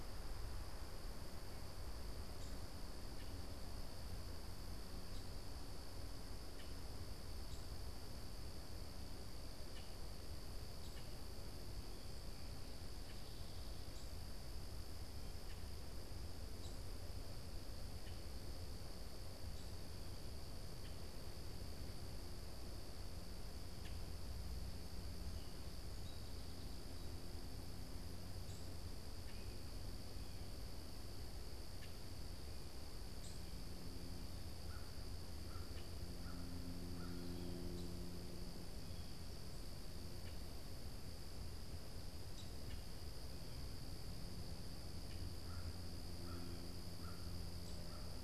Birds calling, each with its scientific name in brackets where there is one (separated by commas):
Common Grackle (Quiscalus quiscula), American Crow (Corvus brachyrhynchos), Downy Woodpecker (Dryobates pubescens)